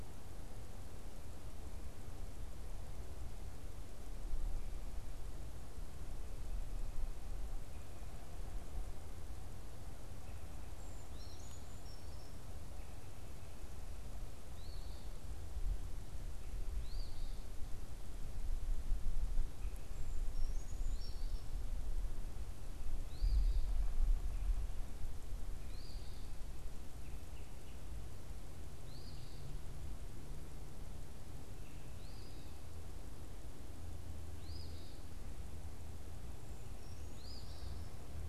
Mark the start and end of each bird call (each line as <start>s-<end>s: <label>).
10.7s-12.5s: Brown Creeper (Certhia americana)
11.0s-23.8s: Eastern Phoebe (Sayornis phoebe)
19.5s-21.6s: Brown Creeper (Certhia americana)
25.4s-38.1s: Eastern Phoebe (Sayornis phoebe)
26.9s-27.9s: Red-bellied Woodpecker (Melanerpes carolinus)
36.7s-38.1s: Brown Creeper (Certhia americana)